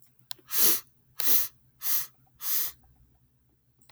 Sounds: Sniff